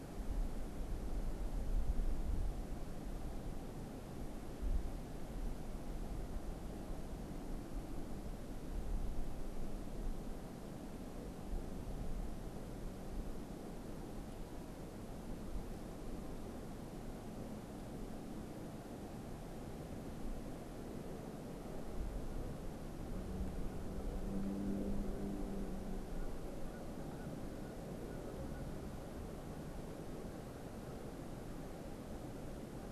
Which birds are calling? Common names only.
unidentified bird